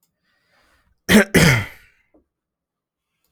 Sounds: Throat clearing